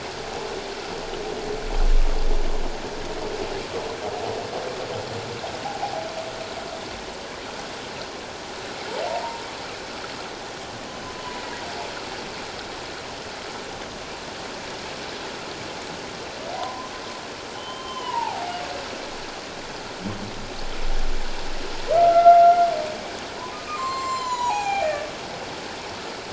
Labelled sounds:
5.6	5.9	humpback whale, 0.78 to 0.88 kHz
9.1	9.4	humpback whale, 0.84 to 1.1 kHz
11.2	11.6	humpback whale, 0.94 to 2.0 kHz
16.6	16.9	humpback whale, 0.88 to 1.1 kHz
17.5	18.4	humpback whale, 0.78 to 3.2 kHz
22.0	22.7	humpback whale, 1.2 to 2.1 kHz
23.5	25.1	humpback whale, 0.78 to 7.5 kHz

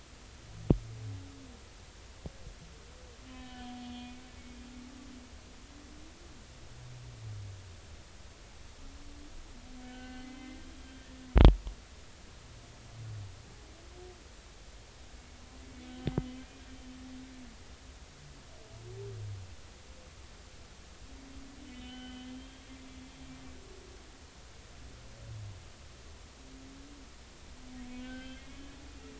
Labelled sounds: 3.3	4.7	humpback whale, 1.7 to 3.5 kHz
9.8	11.1	humpback whale, 1.5 to 4.4 kHz
15.7	16.1	humpback whale, 2.2 to 3.1 kHz
21.7	22.6	humpback whale, 1.4 to 3.3 kHz
27.9	28.7	humpback whale, 1.5 to 3.4 kHz

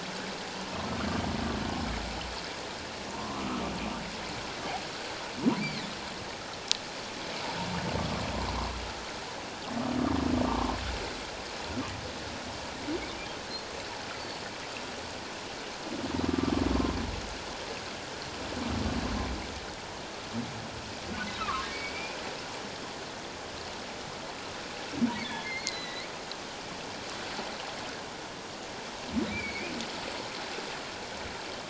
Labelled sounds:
3.1	3.6	humpback whale, 0.88 to 1.4 kHz
16.2	16.5	humpback whale, 1.1 to 1.2 kHz
21.4	22.2	humpback whale, 1.0 to 2.6 kHz
25.2	26.1	humpback whale, 1.7 to 4.2 kHz
29.3	29.7	humpback whale, 2.0 to 2.5 kHz

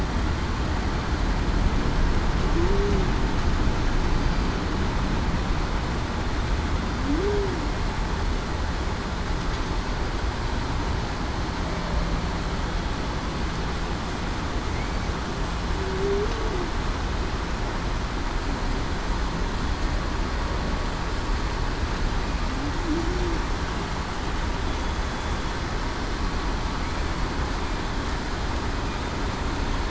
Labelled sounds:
2.5	3.1	humpback whale, 0.30 to 0.42 kHz
4.2	4.6	killer whale, southern resident, 4.5 to 4.7 kHz
7.0	7.6	humpback whale, 0.26 to 0.45 kHz
15.8	16.4	humpback whale, 0.35 to 0.47 kHz
22.8	23.2	humpback whale, 0.26 to 0.38 kHz

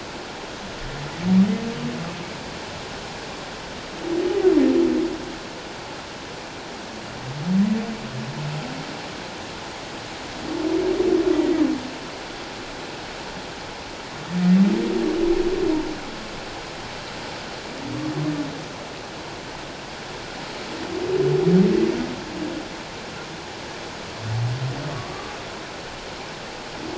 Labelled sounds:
24.9	25.3	humpback whale, 1.1 to 1.2 kHz

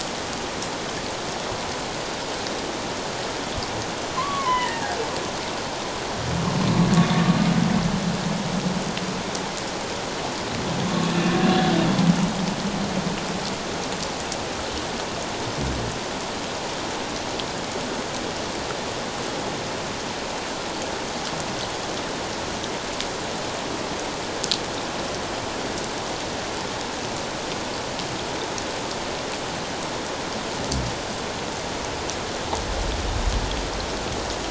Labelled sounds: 4.2	5.0	humpback whale, 0.78 to 3.1 kHz
11.1	11.4	humpback whale, 1.7 to 1.8 kHz

